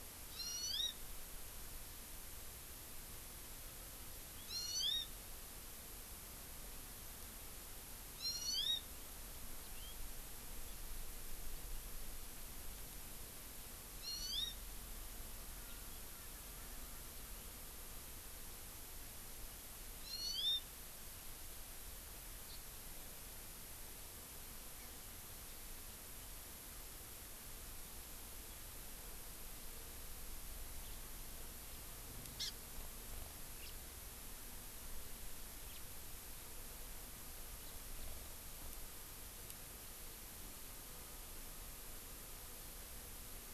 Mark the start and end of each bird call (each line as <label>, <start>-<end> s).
Hawaii Amakihi (Chlorodrepanis virens), 0.4-1.0 s
Hawaii Amakihi (Chlorodrepanis virens), 4.4-5.1 s
Hawaii Amakihi (Chlorodrepanis virens), 8.1-8.9 s
Hawaii Amakihi (Chlorodrepanis virens), 14.0-14.6 s
Hawaii Amakihi (Chlorodrepanis virens), 20.1-20.6 s
Hawaii Amakihi (Chlorodrepanis virens), 22.5-22.6 s
Hawaii Amakihi (Chlorodrepanis virens), 32.4-32.5 s
House Finch (Haemorhous mexicanus), 33.6-33.8 s
House Finch (Haemorhous mexicanus), 35.7-35.8 s